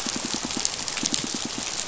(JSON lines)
{"label": "biophony, pulse", "recorder": "SoundTrap 500"}